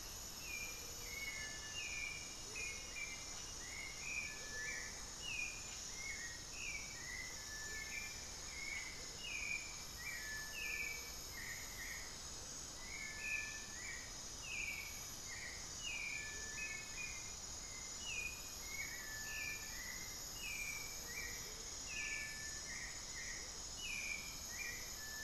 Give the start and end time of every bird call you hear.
0.0s-25.2s: Hauxwell's Thrush (Turdus hauxwelli)
0.2s-1.3s: Gray-fronted Dove (Leptotila rufaxilla)
2.2s-4.8s: Amazonian Motmot (Momotus momota)
7.4s-9.2s: Amazonian Motmot (Momotus momota)
7.5s-9.4s: unidentified bird
10.5s-11.2s: Gray-fronted Dove (Leptotila rufaxilla)
16.1s-16.6s: Amazonian Motmot (Momotus momota)
20.7s-21.4s: Gray-fronted Dove (Leptotila rufaxilla)
21.4s-23.6s: Amazonian Motmot (Momotus momota)

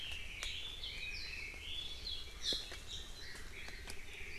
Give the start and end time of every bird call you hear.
0.0s-4.4s: Chinese Hwamei (Garrulax canorus)

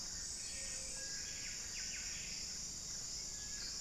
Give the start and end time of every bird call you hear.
0.0s-3.8s: Buff-breasted Wren (Cantorchilus leucotis)
0.0s-3.8s: Little Tinamou (Crypturellus soui)
0.0s-3.8s: Ruddy Quail-Dove (Geotrygon montana)

